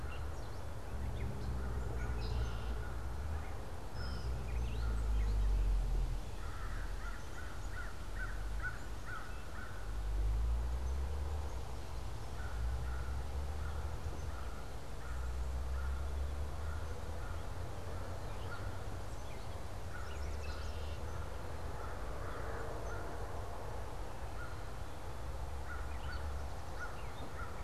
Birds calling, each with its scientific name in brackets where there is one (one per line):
Red-winged Blackbird (Agelaius phoeniceus)
Yellow Warbler (Setophaga petechia)
Gray Catbird (Dumetella carolinensis)
American Crow (Corvus brachyrhynchos)